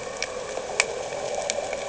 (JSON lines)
{"label": "anthrophony, boat engine", "recorder": "HydroMoth"}